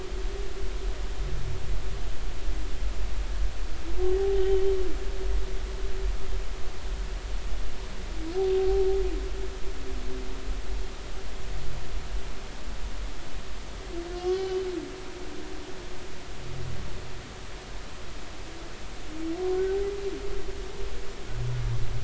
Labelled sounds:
4.1	4.6	humpback whale, 0.80 to 3.2 kHz
14.1	14.6	humpback whale, 1.0 to 3.1 kHz

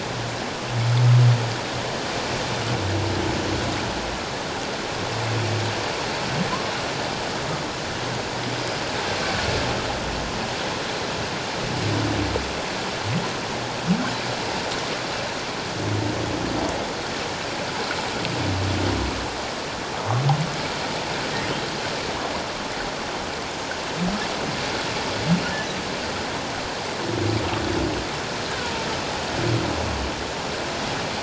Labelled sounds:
8.5	8.8	humpback whale, 4.9 to 5.1 kHz

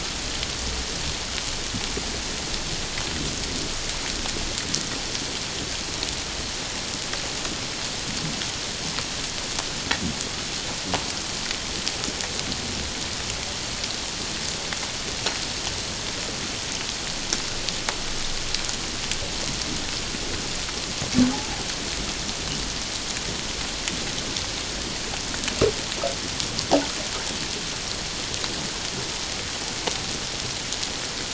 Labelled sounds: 21.3	21.6	humpback whale, 0.78 to 0.91 kHz

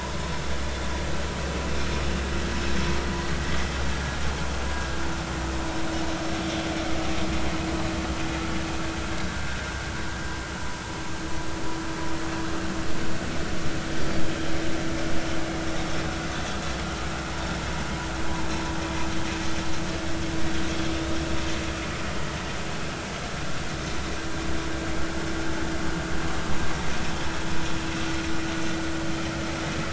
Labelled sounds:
9.1	9.5	vessel noise, 1.4 to 1.7 kHz

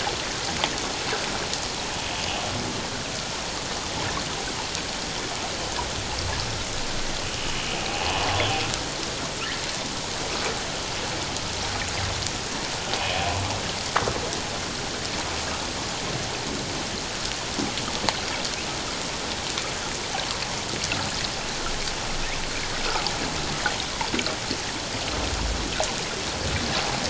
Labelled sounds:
8.0	8.3	humpback whale, 0.78 to 1.1 kHz

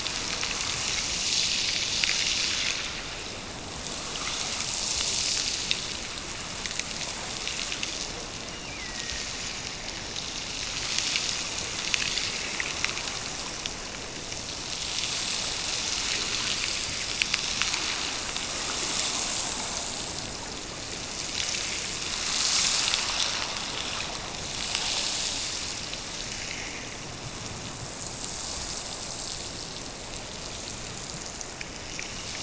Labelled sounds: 8.3	9.3	killer whale, Bigg's (transient), Gulf of Alaska transient, 1.7 to 3.0 kHz

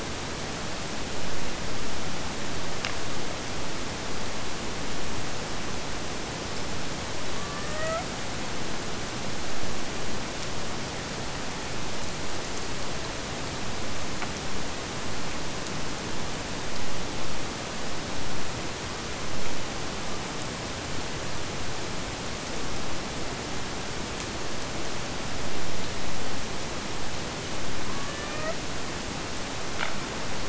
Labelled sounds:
7.2	8.2	killer whale, Bigg's (transient), AT1 transient, 0.51 to 2.3 kHz
27.9	28.7	killer whale, Bigg's (transient), AT1 transient, 0.49 to 3.7 kHz

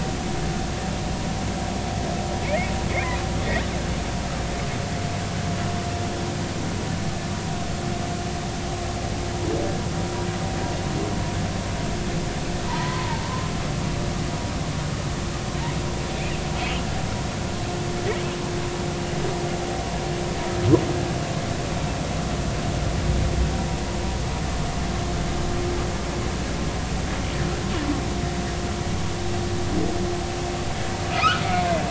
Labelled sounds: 2.9	3.2	humpback whale, 1.9 to 2.5 kHz
12.7	13.3	humpback whale, 0.86 to 1.1 kHz
31.1	31.4	humpback whale, 1.2 to 2.7 kHz

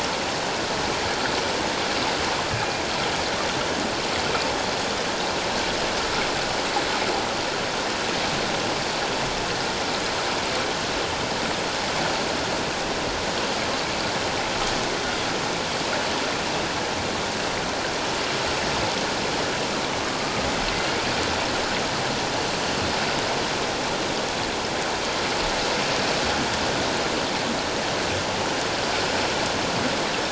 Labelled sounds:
2.5	2.8	killer whale, 2.3 to 2.5 kHz
20.1	20.5	killer whale, 1.1 to 1.3 kHz

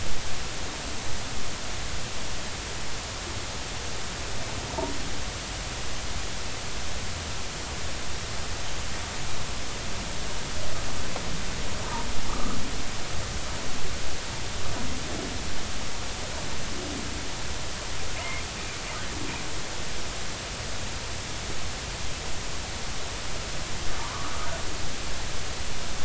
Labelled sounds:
12.3	12.6	humpback whale, 1.1 to 1.3 kHz
18.2	18.4	humpback whale, 2.0 to 2.2 kHz
24.0	24.5	humpback whale, 0.83 to 1.3 kHz

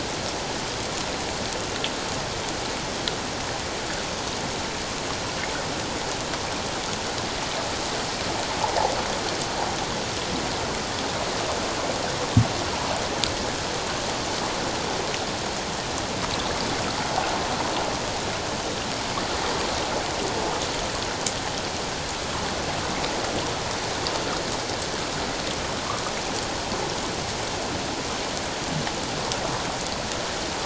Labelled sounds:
8.6	8.9	water noise, 0.78 to 1.0 kHz

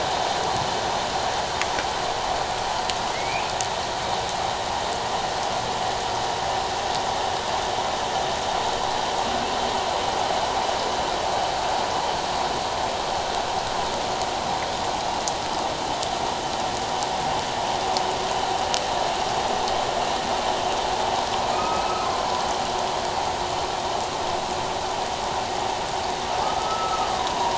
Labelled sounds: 3.1	3.5	humpback whale, 2.0 to 2.6 kHz
21.5	22.1	humpback whale, 1.2 to 2.7 kHz
26.4	27.5	humpback whale, 0.91 to 1.4 kHz

